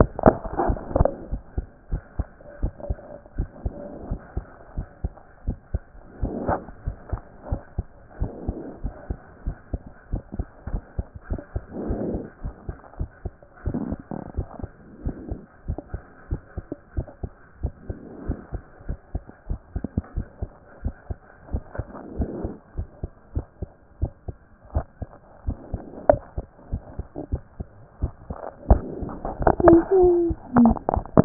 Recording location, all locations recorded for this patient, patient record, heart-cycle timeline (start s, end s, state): pulmonary valve (PV)
aortic valve (AV)+pulmonary valve (PV)+tricuspid valve (TV)+mitral valve (MV)
#Age: Child
#Sex: Male
#Height: 123.0 cm
#Weight: 24.3 kg
#Pregnancy status: False
#Murmur: Absent
#Murmur locations: nan
#Most audible location: nan
#Systolic murmur timing: nan
#Systolic murmur shape: nan
#Systolic murmur grading: nan
#Systolic murmur pitch: nan
#Systolic murmur quality: nan
#Diastolic murmur timing: nan
#Diastolic murmur shape: nan
#Diastolic murmur grading: nan
#Diastolic murmur pitch: nan
#Diastolic murmur quality: nan
#Outcome: Normal
#Campaign: 2014 screening campaign
0.00	1.30	unannotated
1.30	1.42	S1
1.42	1.56	systole
1.56	1.66	S2
1.66	1.90	diastole
1.90	2.02	S1
2.02	2.18	systole
2.18	2.26	S2
2.26	2.62	diastole
2.62	2.72	S1
2.72	2.88	systole
2.88	2.98	S2
2.98	3.36	diastole
3.36	3.48	S1
3.48	3.64	systole
3.64	3.74	S2
3.74	4.08	diastole
4.08	4.20	S1
4.20	4.36	systole
4.36	4.44	S2
4.44	4.76	diastole
4.76	4.86	S1
4.86	5.02	systole
5.02	5.12	S2
5.12	5.46	diastole
5.46	5.58	S1
5.58	5.72	systole
5.72	5.82	S2
5.82	6.22	diastole
6.22	6.34	S1
6.34	6.48	systole
6.48	6.58	S2
6.58	6.86	diastole
6.86	6.96	S1
6.96	7.12	systole
7.12	7.20	S2
7.20	7.50	diastole
7.50	7.60	S1
7.60	7.76	systole
7.76	7.86	S2
7.86	8.20	diastole
8.20	8.32	S1
8.32	8.46	systole
8.46	8.56	S2
8.56	8.82	diastole
8.82	8.94	S1
8.94	9.08	systole
9.08	9.18	S2
9.18	9.44	diastole
9.44	9.56	S1
9.56	9.72	systole
9.72	9.82	S2
9.82	10.12	diastole
10.12	10.22	S1
10.22	10.38	systole
10.38	10.46	S2
10.46	10.70	diastole
10.70	10.82	S1
10.82	10.96	systole
10.96	11.06	S2
11.06	11.30	diastole
11.30	11.40	S1
11.40	11.54	systole
11.54	11.62	S2
11.62	11.86	diastole
11.86	12.00	S1
12.00	12.12	systole
12.12	12.24	S2
12.24	12.42	diastole
12.42	12.54	S1
12.54	12.68	systole
12.68	12.76	S2
12.76	12.98	diastole
12.98	13.10	S1
13.10	13.24	systole
13.24	13.34	S2
13.34	13.66	diastole
13.66	13.78	S1
13.78	13.90	systole
13.90	14.00	S2
14.00	14.36	diastole
14.36	14.46	S1
14.46	14.62	systole
14.62	14.70	S2
14.70	15.04	diastole
15.04	15.16	S1
15.16	15.30	systole
15.30	15.40	S2
15.40	15.68	diastole
15.68	15.78	S1
15.78	15.94	systole
15.94	16.04	S2
16.04	16.30	diastole
16.30	16.40	S1
16.40	16.58	systole
16.58	16.66	S2
16.66	16.96	diastole
16.96	17.06	S1
17.06	17.22	systole
17.22	17.32	S2
17.32	17.62	diastole
17.62	17.74	S1
17.74	17.88	systole
17.88	17.98	S2
17.98	18.26	diastole
18.26	18.38	S1
18.38	18.52	systole
18.52	18.62	S2
18.62	18.88	diastole
18.88	18.98	S1
18.98	19.14	systole
19.14	19.24	S2
19.24	19.48	diastole
19.48	19.60	S1
19.60	19.74	systole
19.74	19.84	S2
19.84	20.16	diastole
20.16	20.26	S1
20.26	20.42	systole
20.42	20.52	S2
20.52	20.84	diastole
20.84	20.94	S1
20.94	21.08	systole
21.08	21.20	S2
21.20	21.52	diastole
21.52	21.62	S1
21.62	21.78	systole
21.78	21.86	S2
21.86	22.18	diastole
22.18	22.30	S1
22.30	22.44	systole
22.44	22.54	S2
22.54	22.78	diastole
22.78	22.88	S1
22.88	23.02	systole
23.02	23.12	S2
23.12	23.34	diastole
23.34	23.46	S1
23.46	23.60	systole
23.60	23.70	S2
23.70	24.00	diastole
24.00	24.12	S1
24.12	24.28	systole
24.28	24.38	S2
24.38	24.74	diastole
24.74	24.86	S1
24.86	25.00	systole
25.00	25.12	S2
25.12	25.46	diastole
25.46	31.25	unannotated